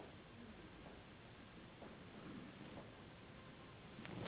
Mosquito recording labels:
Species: Anopheles gambiae s.s.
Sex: female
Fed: unfed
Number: one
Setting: insect culture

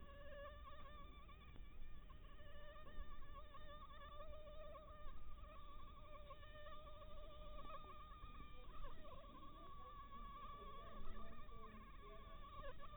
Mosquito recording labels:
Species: Anopheles harrisoni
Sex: female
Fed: blood-fed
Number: one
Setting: cup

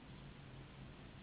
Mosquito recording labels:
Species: Anopheles gambiae s.s.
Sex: female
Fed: unfed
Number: one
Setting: insect culture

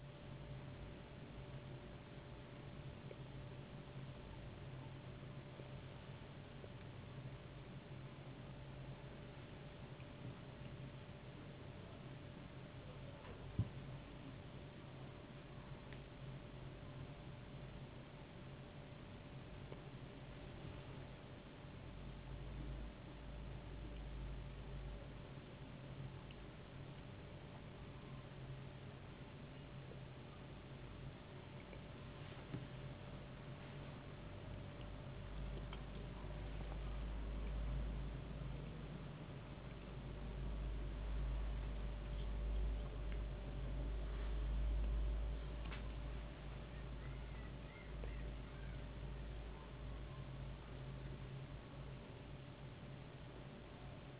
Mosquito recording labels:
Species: no mosquito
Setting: insect culture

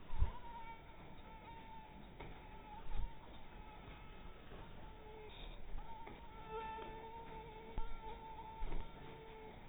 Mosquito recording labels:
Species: mosquito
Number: one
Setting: cup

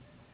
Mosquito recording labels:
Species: Anopheles gambiae s.s.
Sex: female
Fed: unfed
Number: one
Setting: insect culture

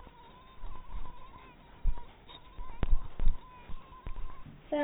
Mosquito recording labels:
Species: mosquito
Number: one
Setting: cup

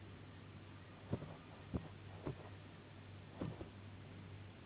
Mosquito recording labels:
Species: Anopheles gambiae s.s.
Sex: female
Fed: unfed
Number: one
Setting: insect culture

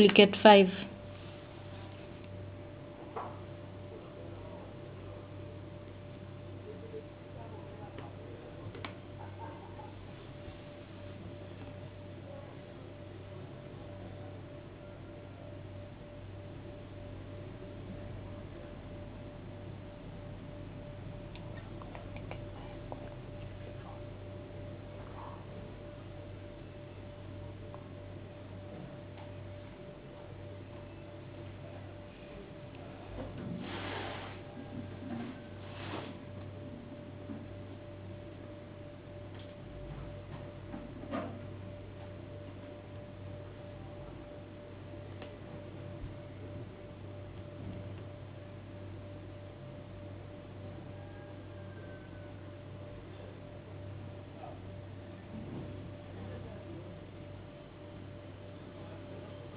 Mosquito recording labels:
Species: no mosquito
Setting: insect culture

